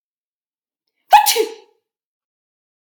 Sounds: Sneeze